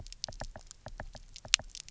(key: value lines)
label: biophony, knock
recorder: SoundTrap 300